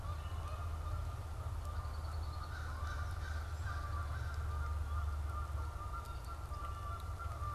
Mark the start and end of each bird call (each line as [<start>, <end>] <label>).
[0.00, 3.93] Canada Goose (Branta canadensis)
[1.63, 2.73] Red-winged Blackbird (Agelaius phoeniceus)
[2.23, 4.63] American Crow (Corvus brachyrhynchos)
[4.73, 7.54] Canada Goose (Branta canadensis)